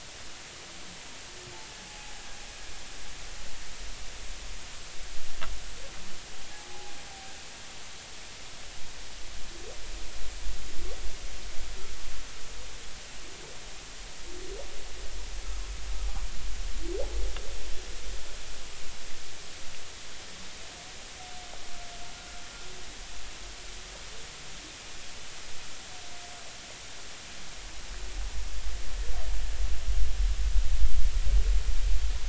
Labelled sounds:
1.9	2.2	humpback whale, 0.80 to 0.96 kHz
6.5	7.0	humpback whale, 0.80 to 0.93 kHz

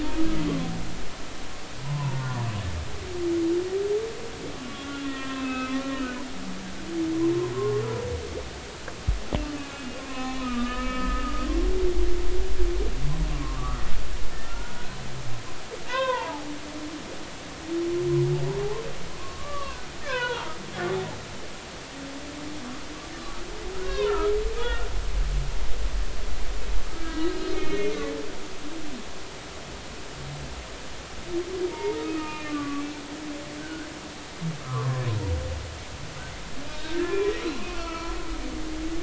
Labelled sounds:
1.8	2.4	humpback whale, 0.83 to 1.5 kHz
4.8	6.2	humpback whale, 0.99 to 3.6 kHz
7.5	7.8	humpback whale, 0.96 to 1.1 kHz
9.6	11.5	humpback whale, 0.96 to 4.2 kHz
13.3	15.0	humpback whale, 0.96 to 1.6 kHz
15.9	16.5	humpback whale, 0.80 to 3.8 kHz
19.2	20.5	humpback whale, 0.86 to 4.2 kHz
23.8	24.3	humpback whale, 0.90 to 3.9 kHz
24.6	24.9	humpback whale, 1.3 to 1.5 kHz
26.9	27.9	humpback whale, 1.2 to 4.6 kHz
31.7	33.0	humpback whale, 0.86 to 2.8 kHz
33.6	33.9	humpback whale, 1.4 to 1.7 kHz
34.6	35.0	humpback whale, 0.96 to 1.4 kHz
36.7	37.2	humpback whale, 1.5 to 3.9 kHz
37.7	38.2	humpback whale, 0.96 to 2.8 kHz

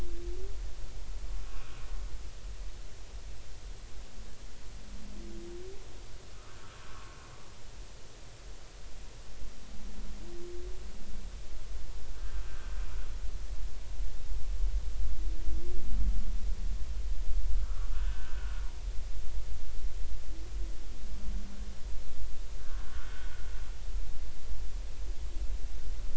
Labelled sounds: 12.5	12.7	humpback whale, 1.4 to 1.6 kHz
17.6	18.6	humpback whale, 1.1 to 1.6 kHz
22.6	22.9	humpback whale, 1.3 to 1.7 kHz

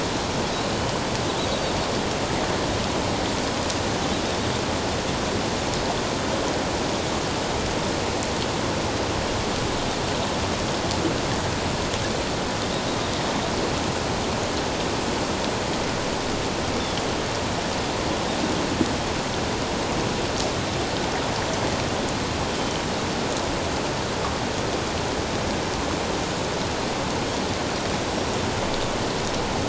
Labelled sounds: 22.6	22.8	Pacific white-sided dolphin, 2.9 to 3.2 kHz
28.2	28.4	Pacific white-sided dolphin, 5.3 to 5.7 kHz

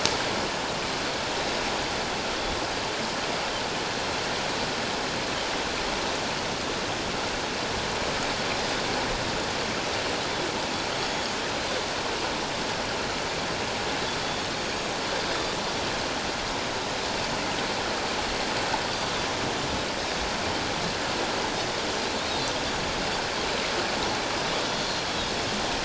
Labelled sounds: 1.4	1.6	Pacific white-sided dolphin, 3.7 to 4.0 kHz
11.0	11.4	Pacific white-sided dolphin, 6.5 to 6.8 kHz
14.6	14.9	Pacific white-sided dolphin, 6.5 to 6.7 kHz
22.2	22.5	Pacific white-sided dolphin, 3.5 to 3.9 kHz

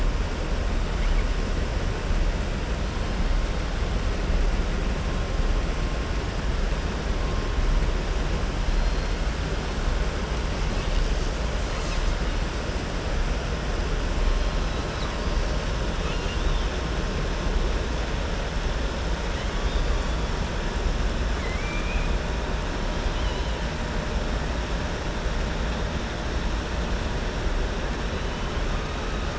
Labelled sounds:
15.9	16.7	killer whale, southern resident, 2.5 to 4.1 kHz
21.3	22.1	killer whale, southern resident, 1.1 to 3.1 kHz
22.9	23.6	killer whale, southern resident, 2.2 to 5.0 kHz

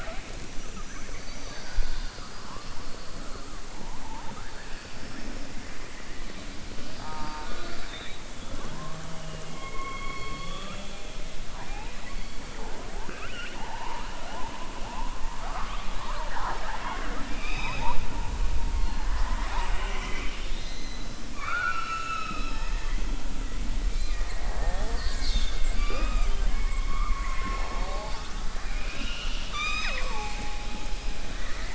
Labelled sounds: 11.5	12.3	killer whale, southern resident, 0.78 to 2.7 kHz
21.3	23.0	killer whale, southern resident, 0.90 to 6.5 kHz
28.7	30.5	killer whale, southern resident, 0.57 to 7.5 kHz

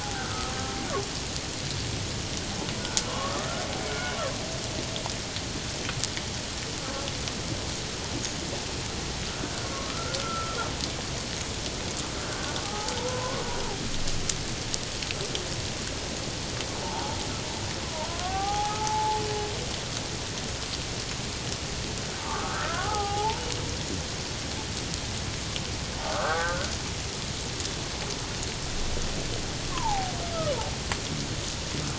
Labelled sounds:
0.0	0.5	humpback whale, 0.78 to 1.6 kHz
3.1	4.2	humpback whale, 0.97 to 1.6 kHz
9.6	10.6	humpback whale, 1.0 to 1.5 kHz
12.6	13.4	humpback whale, 0.78 to 1.3 kHz
16.8	17.2	humpback whale, 0.78 to 0.97 kHz
18.2	19.2	humpback whale, 0.78 to 1.6 kHz
22.2	23.4	humpback whale, 0.78 to 1.8 kHz
26.1	26.7	humpback whale, 0.78 to 1.7 kHz
29.7	30.1	humpback whale, 0.78 to 1.2 kHz

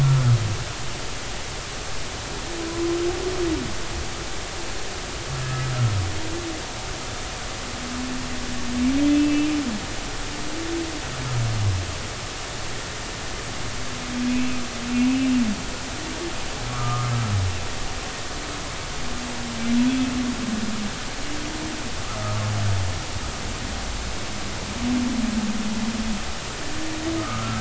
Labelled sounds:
5.4	5.7	humpback whale, 1.6 to 1.8 kHz
9.1	9.5	humpback whale, 2.6 to 2.8 kHz
14.9	15.3	humpback whale, 2.4 to 2.7 kHz
16.7	17.1	humpback whale, 1.1 to 1.4 kHz
27.2	27.5	humpback whale, 1.2 to 1.4 kHz

